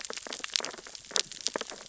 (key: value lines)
label: biophony, sea urchins (Echinidae)
recorder: SoundTrap 600 or HydroMoth